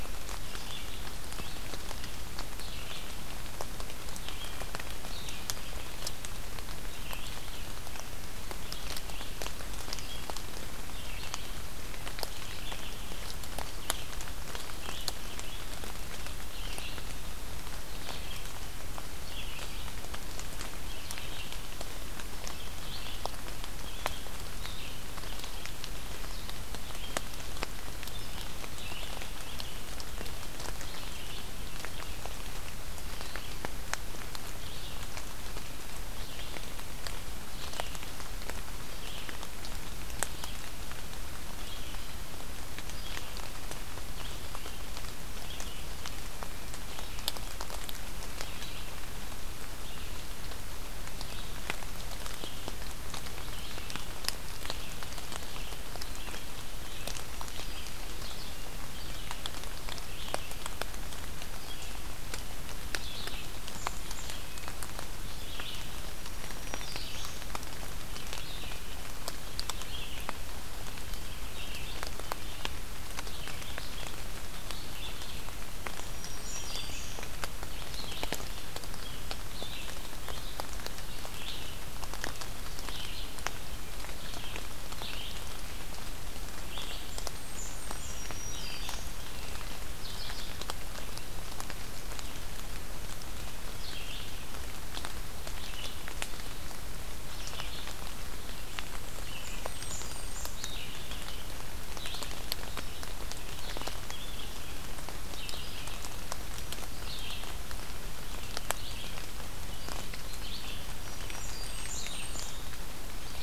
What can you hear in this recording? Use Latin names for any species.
Vireo olivaceus, Setophaga virens, Setophaga fusca